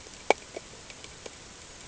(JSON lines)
{"label": "ambient", "recorder": "HydroMoth"}